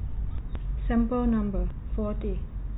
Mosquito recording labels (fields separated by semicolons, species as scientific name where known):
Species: no mosquito; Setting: cup